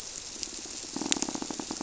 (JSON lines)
{"label": "biophony, squirrelfish (Holocentrus)", "recorder": "SoundTrap 300"}